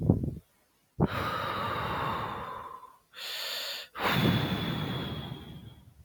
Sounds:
Sigh